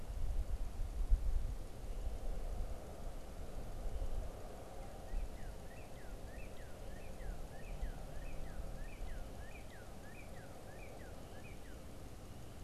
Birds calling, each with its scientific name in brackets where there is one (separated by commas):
Northern Cardinal (Cardinalis cardinalis)